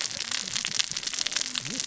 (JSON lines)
{"label": "biophony, cascading saw", "recorder": "SoundTrap 600 or HydroMoth"}